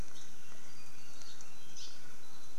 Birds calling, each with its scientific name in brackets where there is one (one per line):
Hawaii Creeper (Loxops mana)